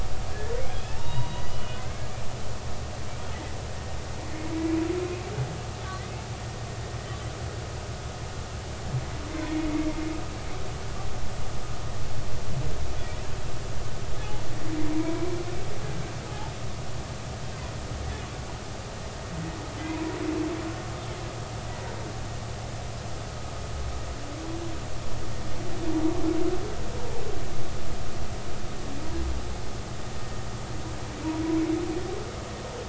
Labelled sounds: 0.7	2.3	humpback whale, 0.83 to 3.9 kHz
9.5	9.9	humpback whale, 2.1 to 2.2 kHz
14.9	15.3	humpback whale, 0.93 to 1.1 kHz

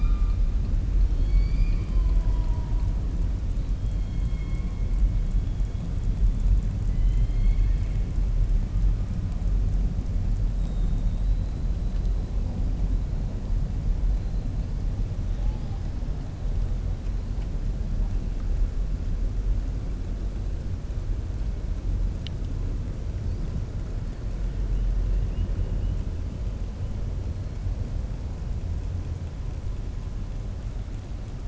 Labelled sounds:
1.1	2.9	killer whale, southern resident, 0.64 to 4.9 kHz
6.9	8.0	killer whale, southern resident, 1.8 to 4.4 kHz
10.5	11.6	killer whale, southern resident, 3.5 to 4.3 kHz

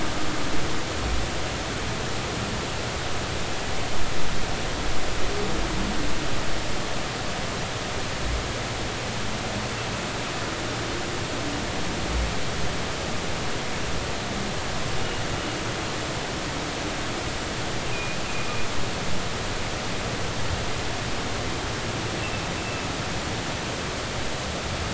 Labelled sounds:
17.9	18.2	humpback whale, 2.4 to 2.6 kHz

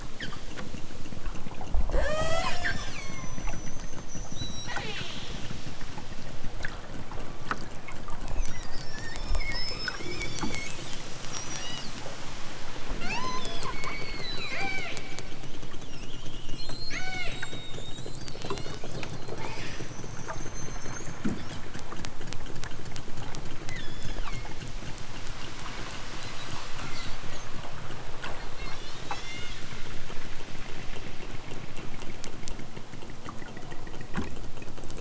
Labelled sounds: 1.9	3.4	killer whale, southern Alaska resident, 0.32 to 8.0 kHz
4.3	5.4	killer whale, southern Alaska resident, 0.18 to 8.0 kHz
11.3	11.9	killer whale, southern Alaska resident, 0.55 to 8.0 kHz
13.0	15.0	killer whale, southern Alaska resident, 0.32 to 8.0 kHz
16.5	17.4	killer whale, southern Alaska resident, 0.18 to 8.0 kHz
18.4	18.8	killer whale, southern Alaska resident, 1.0 to 8.0 kHz
23.6	24.6	killer whale, southern Alaska resident, 0.60 to 7.4 kHz
28.5	29.6	killer whale, southern Alaska resident, 1.2 to 8.0 kHz

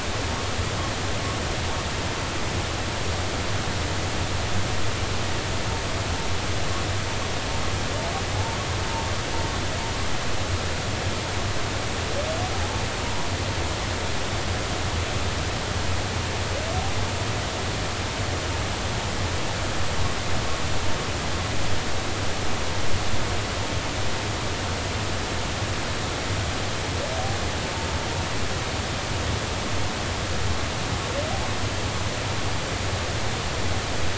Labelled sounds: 8.3	8.6	humpback whale, 0.83 to 0.96 kHz

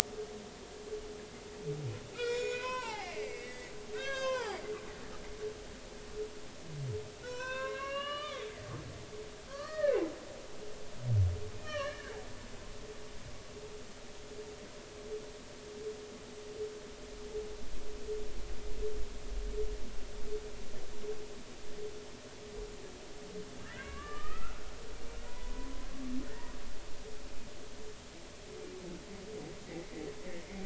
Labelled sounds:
2.1	5.6	humpback whale, 0.80 to 7.9 kHz
7.2	8.5	humpback whale, 0.93 to 5.8 kHz
9.5	10.0	humpback whale, 1.0 to 1.9 kHz
11.6	12.1	humpback whale, 1.0 to 3.1 kHz
23.6	24.7	humpback whale, 1.0 to 3.0 kHz
25.2	25.9	humpback whale, 0.93 to 1.1 kHz
26.2	26.5	humpback whale, 1.8 to 2.0 kHz

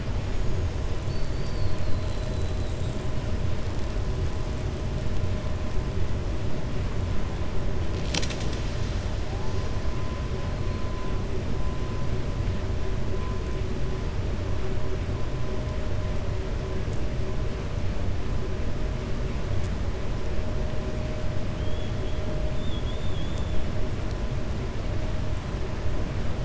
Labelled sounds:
2.2	3.0	killer whale, 6.7 to 8.0 kHz

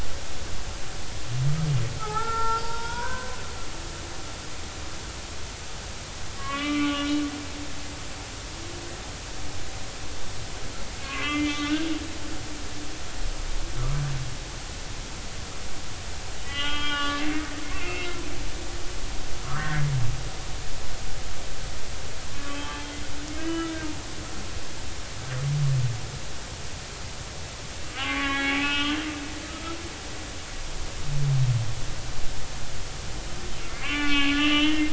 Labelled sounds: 2.0	3.4	humpback whale, 0.80 to 5.3 kHz
6.4	7.2	humpback whale, 1.0 to 3.3 kHz
11.0	11.7	humpback whale, 1.0 to 3.0 kHz
12.5	12.8	humpback whale, 1.1 to 1.3 kHz
16.4	18.2	humpback whale, 1.1 to 3.3 kHz
19.5	19.9	humpback whale, 1.5 to 2.0 kHz
22.3	24.7	humpback whale, 0.83 to 3.2 kHz
28.0	29.0	humpback whale, 0.80 to 4.1 kHz
29.4	29.8	humpback whale, 1.2 to 1.4 kHz
33.6	34.9	humpback whale, 1.0 to 3.6 kHz

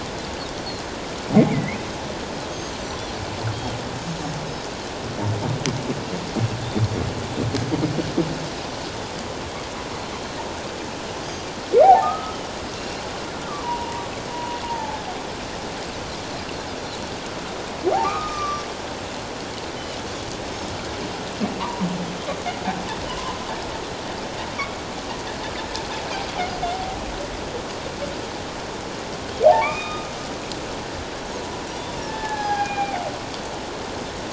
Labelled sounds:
1.5	1.8	humpback whale, 1.9 to 2.4 kHz
11.8	12.4	humpback whale, 0.78 to 1.4 kHz
12.7	13.0	Pacific white-sided dolphin, 2.7 to 2.8 kHz
13.6	15.0	humpback whale, 0.81 to 1.0 kHz
17.9	18.6	humpback whale, 0.78 to 1.4 kHz
20.5	20.8	Pacific white-sided dolphin, 5.2 to 5.4 kHz
21.6	21.9	humpback whale, 0.91 to 1.2 kHz
23.1	23.4	humpback whale, 0.88 to 1.2 kHz
24.5	24.8	humpback whale, 2.1 to 2.4 kHz
29.5	30.1	humpback whale, 0.78 to 3.8 kHz
32.0	33.0	humpback whale, 0.78 to 5.0 kHz

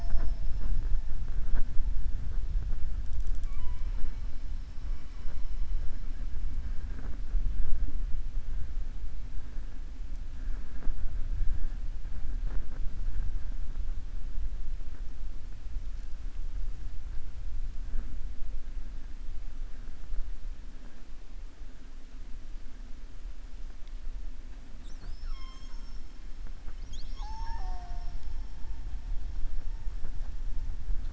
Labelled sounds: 3.4	4.2	killer whale, southern resident, 0.99 to 3.2 kHz

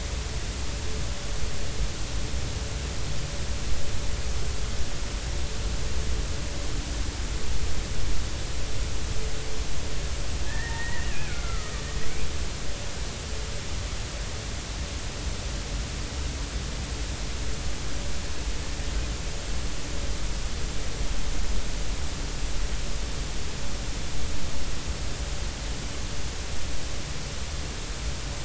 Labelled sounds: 10.5	11.9	killer whale, Bigg's (transient), 1.1 to 2.7 kHz

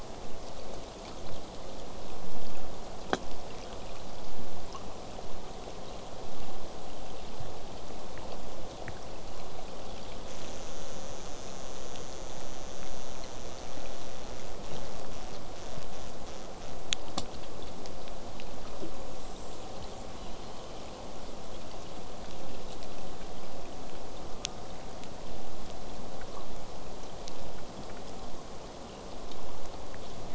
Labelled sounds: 20.0	21.0	killer whale, southern resident, J pod, 6.9 to 8.0 kHz
24.2	24.8	killer whale, southern resident, J pod, call S04, 0.17 to 1.5 kHz

